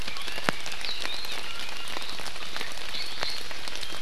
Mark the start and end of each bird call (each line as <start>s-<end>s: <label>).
0.0s-0.6s: Iiwi (Drepanis coccinea)
1.4s-2.0s: Iiwi (Drepanis coccinea)